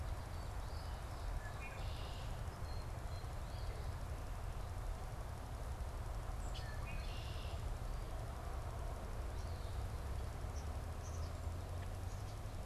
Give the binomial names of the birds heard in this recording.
Sayornis phoebe, Agelaius phoeniceus, Cyanocitta cristata, Poecile atricapillus